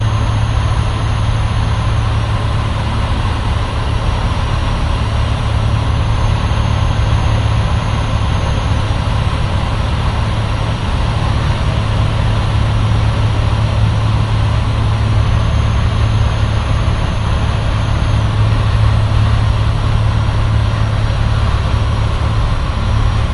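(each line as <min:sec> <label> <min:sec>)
0:00.0 Airplane engines running, heard from inside the airplane. 0:23.3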